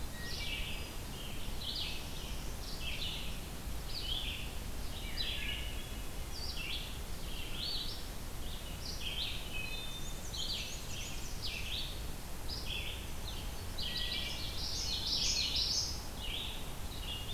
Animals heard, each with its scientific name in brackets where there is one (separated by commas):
Common Yellowthroat (Geothlypis trichas), Hermit Thrush (Catharus guttatus), Wood Thrush (Hylocichla mustelina), Black-and-white Warbler (Mniotilta varia), Red-eyed Vireo (Vireo olivaceus)